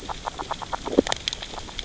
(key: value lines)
label: biophony, grazing
recorder: SoundTrap 600 or HydroMoth